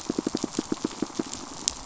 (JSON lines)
{"label": "biophony, pulse", "recorder": "SoundTrap 500"}